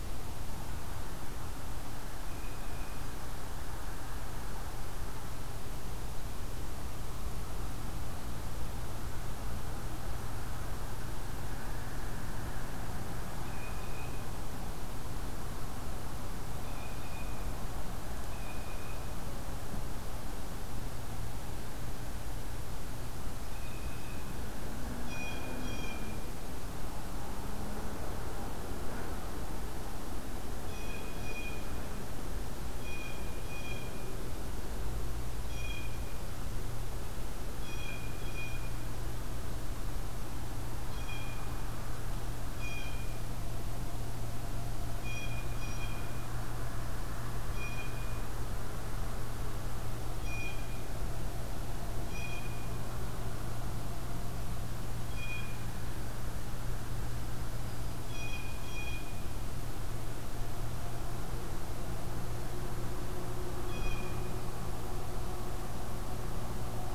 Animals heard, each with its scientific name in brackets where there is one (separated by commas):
Blue Jay (Cyanocitta cristata), Yellow-rumped Warbler (Setophaga coronata)